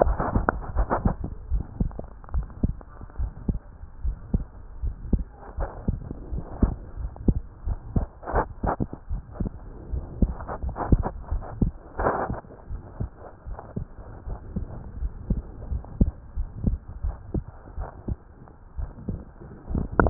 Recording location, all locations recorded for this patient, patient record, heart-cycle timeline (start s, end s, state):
tricuspid valve (TV)
aortic valve (AV)+pulmonary valve (PV)+tricuspid valve (TV)+mitral valve (MV)
#Age: Child
#Sex: Male
#Height: 129.0 cm
#Weight: 22.3 kg
#Pregnancy status: False
#Murmur: Present
#Murmur locations: pulmonary valve (PV)+tricuspid valve (TV)
#Most audible location: pulmonary valve (PV)
#Systolic murmur timing: Late-systolic
#Systolic murmur shape: Diamond
#Systolic murmur grading: I/VI
#Systolic murmur pitch: Low
#Systolic murmur quality: Harsh
#Diastolic murmur timing: nan
#Diastolic murmur shape: nan
#Diastolic murmur grading: nan
#Diastolic murmur pitch: nan
#Diastolic murmur quality: nan
#Outcome: Abnormal
#Campaign: 2015 screening campaign
0.00	2.03	unannotated
2.03	2.32	diastole
2.32	2.48	S1
2.48	2.62	systole
2.62	2.78	S2
2.78	3.18	diastole
3.18	3.32	S1
3.32	3.46	systole
3.46	3.60	S2
3.60	4.00	diastole
4.00	4.16	S1
4.16	4.32	systole
4.32	4.46	S2
4.46	4.80	diastole
4.80	4.94	S1
4.94	5.08	systole
5.08	5.24	S2
5.24	5.58	diastole
5.58	5.70	S1
5.70	5.86	systole
5.86	6.00	S2
6.00	6.30	diastole
6.30	6.44	S1
6.44	6.58	systole
6.58	6.74	S2
6.74	6.98	diastole
6.98	7.12	S1
7.12	7.24	systole
7.24	7.36	S2
7.36	7.66	diastole
7.66	7.80	S1
7.80	7.94	systole
7.94	8.08	S2
8.08	8.34	diastole
8.34	8.48	S1
8.48	8.64	systole
8.64	8.76	S2
8.76	9.10	diastole
9.10	9.22	S1
9.22	9.38	systole
9.38	9.52	S2
9.52	9.90	diastole
9.90	10.04	S1
10.04	10.20	systole
10.20	10.36	S2
10.36	10.64	diastole
10.64	10.76	S1
10.76	10.90	systole
10.90	11.04	S2
11.04	11.30	diastole
11.30	11.44	S1
11.44	11.60	systole
11.60	11.74	S2
11.74	12.00	diastole
12.00	12.14	S1
12.14	12.28	systole
12.28	12.38	S2
12.38	12.68	diastole
12.68	12.80	S1
12.80	12.98	systole
12.98	13.10	S2
13.10	13.48	diastole
13.48	20.10	unannotated